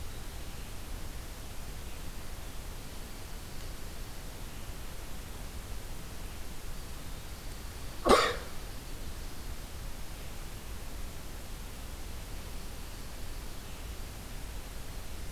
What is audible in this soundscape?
Dark-eyed Junco